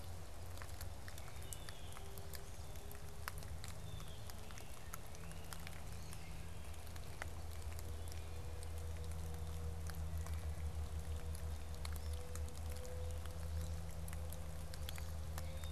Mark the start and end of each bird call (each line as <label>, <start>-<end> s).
Wood Thrush (Hylocichla mustelina), 1.1-2.0 s
Blue Jay (Cyanocitta cristata), 1.4-2.1 s
Wood Duck (Aix sponsa), 2.0-3.3 s
Great Crested Flycatcher (Myiarchus crinitus), 3.4-5.8 s
Wood Duck (Aix sponsa), 5.6-8.6 s
Wood Duck (Aix sponsa), 11.7-15.7 s